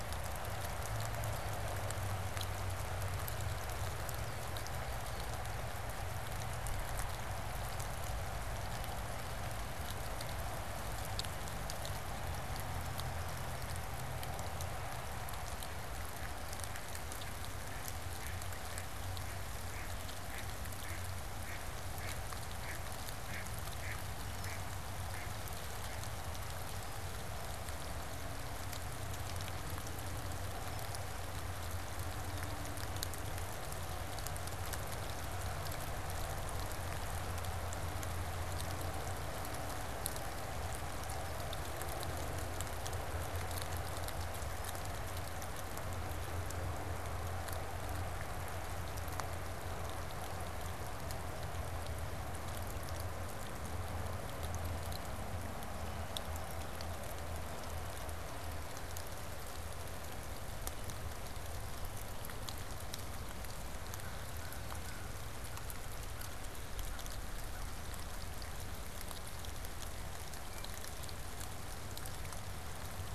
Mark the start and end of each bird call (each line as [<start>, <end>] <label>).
[15.53, 26.43] Mallard (Anas platyrhynchos)
[17.13, 17.33] unidentified bird
[63.83, 68.23] American Crow (Corvus brachyrhynchos)
[70.33, 70.83] Blue Jay (Cyanocitta cristata)